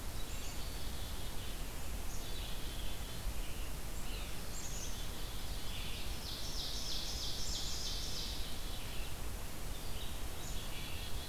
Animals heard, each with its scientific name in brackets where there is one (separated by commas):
Red-eyed Vireo (Vireo olivaceus), Blue Jay (Cyanocitta cristata), Ovenbird (Seiurus aurocapilla), Black-capped Chickadee (Poecile atricapillus)